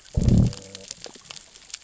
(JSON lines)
{"label": "biophony, growl", "recorder": "SoundTrap 600 or HydroMoth"}